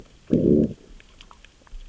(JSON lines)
{"label": "biophony, growl", "recorder": "SoundTrap 600 or HydroMoth"}